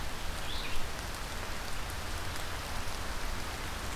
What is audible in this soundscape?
Red-eyed Vireo